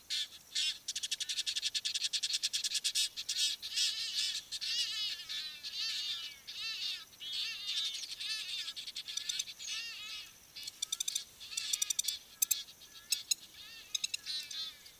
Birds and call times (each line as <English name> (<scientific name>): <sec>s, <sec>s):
Egyptian Goose (Alopochen aegyptiaca): 2.4s
Hadada Ibis (Bostrychia hagedash): 3.9s, 6.7s
Long-toed Lapwing (Vanellus crassirostris): 13.3s